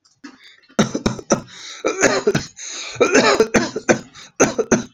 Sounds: Cough